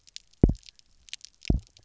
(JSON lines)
{"label": "biophony, double pulse", "recorder": "SoundTrap 300"}